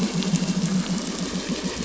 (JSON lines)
{"label": "anthrophony, boat engine", "recorder": "SoundTrap 500"}